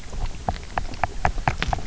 {"label": "biophony, knock", "recorder": "SoundTrap 300"}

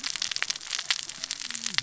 {"label": "biophony, cascading saw", "recorder": "SoundTrap 600 or HydroMoth"}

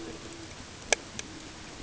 {"label": "ambient", "recorder": "HydroMoth"}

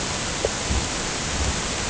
{"label": "ambient", "recorder": "HydroMoth"}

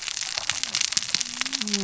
{"label": "biophony, cascading saw", "recorder": "SoundTrap 600 or HydroMoth"}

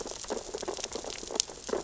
{"label": "biophony, sea urchins (Echinidae)", "recorder": "SoundTrap 600 or HydroMoth"}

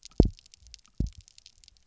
{"label": "biophony, double pulse", "recorder": "SoundTrap 300"}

